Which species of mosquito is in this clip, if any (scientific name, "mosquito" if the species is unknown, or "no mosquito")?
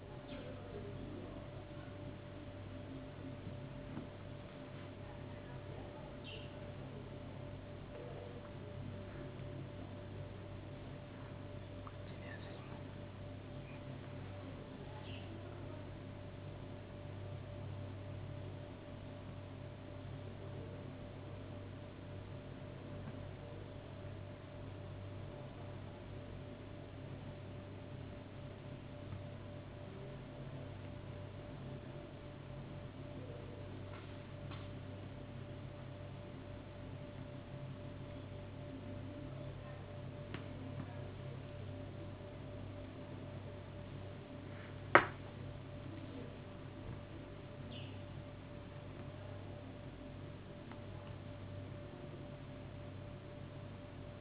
no mosquito